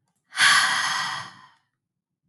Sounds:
Sigh